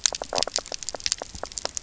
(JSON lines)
{"label": "biophony, knock croak", "recorder": "SoundTrap 300"}